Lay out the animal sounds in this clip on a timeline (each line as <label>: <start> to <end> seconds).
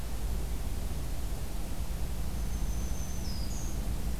Black-throated Green Warbler (Setophaga virens): 2.2 to 3.8 seconds